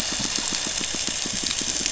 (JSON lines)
{"label": "anthrophony, boat engine", "recorder": "SoundTrap 500"}
{"label": "biophony, pulse", "recorder": "SoundTrap 500"}